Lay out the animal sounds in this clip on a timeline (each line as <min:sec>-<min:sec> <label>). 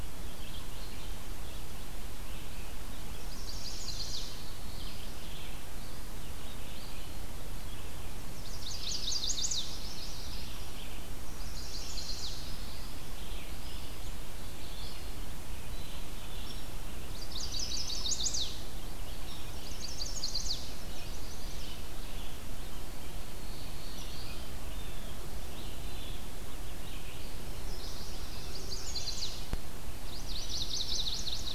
0:00.0-0:31.5 Red-eyed Vireo (Vireo olivaceus)
0:03.1-0:04.3 Chestnut-sided Warbler (Setophaga pensylvanica)
0:03.8-0:05.0 Black-throated Blue Warbler (Setophaga caerulescens)
0:08.3-0:10.6 Chestnut-sided Warbler (Setophaga pensylvanica)
0:11.2-0:12.6 Chestnut-sided Warbler (Setophaga pensylvanica)
0:11.8-0:13.0 Black-throated Blue Warbler (Setophaga caerulescens)
0:15.6-0:16.7 Black-capped Chickadee (Poecile atricapillus)
0:16.9-0:18.7 Chestnut-sided Warbler (Setophaga pensylvanica)
0:19.4-0:21.8 Chestnut-sided Warbler (Setophaga pensylvanica)
0:23.2-0:24.6 Black-throated Blue Warbler (Setophaga caerulescens)
0:24.6-0:25.4 Blue Jay (Cyanocitta cristata)
0:27.4-0:29.5 Chestnut-sided Warbler (Setophaga pensylvanica)
0:29.9-0:31.5 Chestnut-sided Warbler (Setophaga pensylvanica)